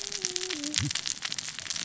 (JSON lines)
{"label": "biophony, cascading saw", "recorder": "SoundTrap 600 or HydroMoth"}